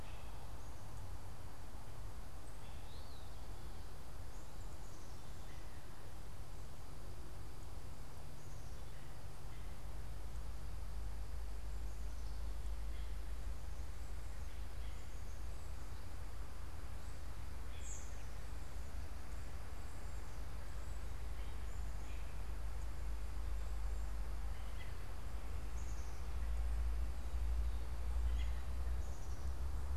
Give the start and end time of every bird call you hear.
2.6s-3.4s: Eastern Wood-Pewee (Contopus virens)
17.5s-17.9s: American Robin (Turdus migratorius)
17.6s-18.1s: unidentified bird
21.9s-28.5s: American Robin (Turdus migratorius)
25.5s-26.5s: Black-capped Chickadee (Poecile atricapillus)

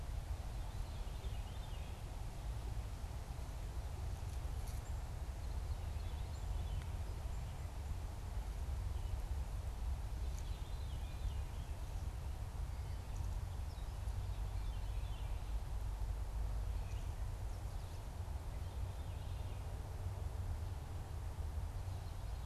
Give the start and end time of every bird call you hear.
0.0s-22.5s: Red-eyed Vireo (Vireo olivaceus)
0.3s-22.5s: Veery (Catharus fuscescens)

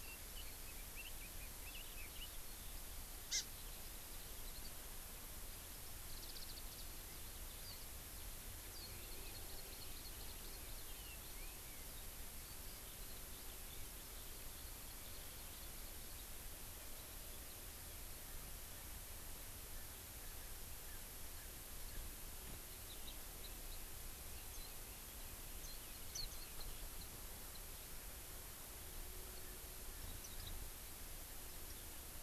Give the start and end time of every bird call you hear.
0.0s-2.3s: Red-billed Leiothrix (Leiothrix lutea)
3.3s-3.4s: Hawaii Amakihi (Chlorodrepanis virens)
8.9s-11.0s: Hawaii Amakihi (Chlorodrepanis virens)
24.5s-24.7s: Japanese Bush Warbler (Horornis diphone)
24.5s-24.7s: Warbling White-eye (Zosterops japonicus)
25.6s-25.8s: Warbling White-eye (Zosterops japonicus)
26.1s-26.3s: Warbling White-eye (Zosterops japonicus)

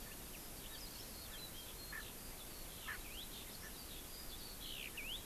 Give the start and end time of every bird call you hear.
0.0s-1.4s: Erckel's Francolin (Pternistis erckelii)
1.8s-3.8s: Erckel's Francolin (Pternistis erckelii)
2.0s-5.3s: Eurasian Skylark (Alauda arvensis)

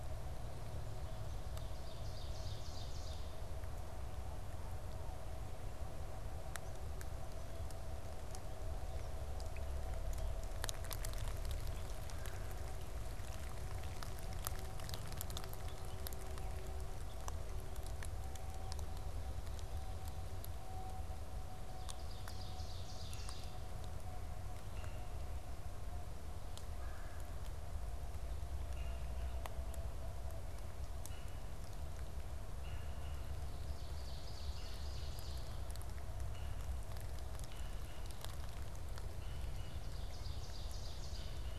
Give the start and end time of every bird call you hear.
1.4s-3.4s: Ovenbird (Seiurus aurocapilla)
12.0s-12.5s: Red-bellied Woodpecker (Melanerpes carolinus)
21.5s-23.6s: Ovenbird (Seiurus aurocapilla)
26.7s-27.3s: Red-bellied Woodpecker (Melanerpes carolinus)
28.6s-39.7s: Red-bellied Woodpecker (Melanerpes carolinus)
33.4s-35.7s: Ovenbird (Seiurus aurocapilla)
39.5s-41.5s: Ovenbird (Seiurus aurocapilla)

